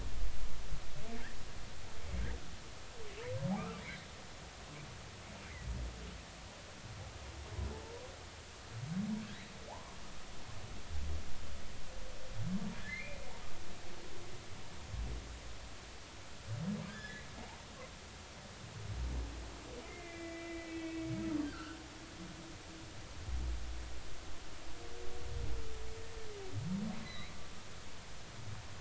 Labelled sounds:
3.6	3.8	humpback whale, 1.1 to 1.4 kHz
9.7	10.0	humpback whale, 0.80 to 1.2 kHz
12.9	13.3	humpback whale, 2.0 to 2.6 kHz
16.9	17.3	humpback whale, 1.5 to 3.6 kHz
19.8	21.1	humpback whale, 1.9 to 2.7 kHz
21.4	21.8	humpback whale, 1.2 to 1.6 kHz
27.0	27.3	humpback whale, 1.9 to 4.1 kHz

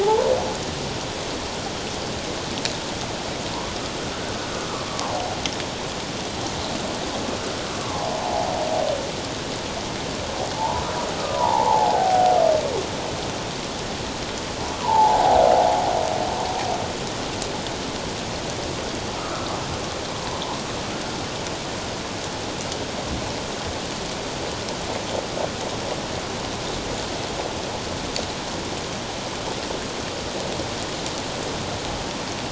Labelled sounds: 0.0	0.3	humpback whale, 0.78 to 1.0 kHz
4.8	5.4	humpback whale, 0.78 to 1.3 kHz
7.8	8.5	humpback whale, 0.78 to 1.2 kHz
10.6	12.4	humpback whale, 0.78 to 1.1 kHz
14.8	15.4	humpback whale, 0.78 to 1.0 kHz
19.2	19.5	humpback whale, 1.1 to 1.4 kHz

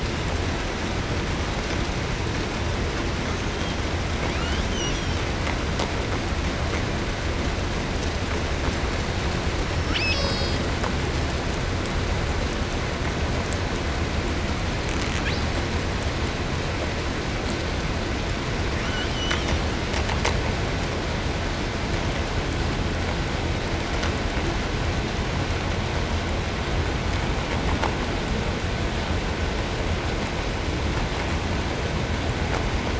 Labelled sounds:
3.2	4.0	killer whale, 2.2 to 6.9 kHz
4.2	5.3	killer whale, southern resident, 0.87 to 6.7 kHz
9.5	10.7	killer whale, southern resident, L pod, call S02iii, 0.91 to 8.0 kHz
15.2	15.6	killer whale, southern resident, 1.2 to 8.0 kHz
18.6	19.7	killer whale, 0.54 to 7.9 kHz

